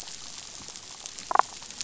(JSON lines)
{"label": "biophony, damselfish", "recorder": "SoundTrap 500"}